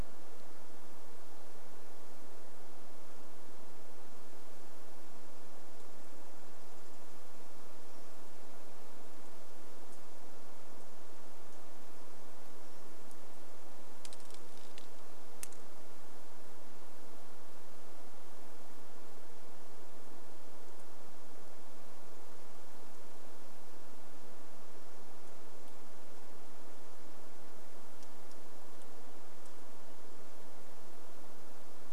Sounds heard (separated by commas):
unidentified sound, Varied Thrush song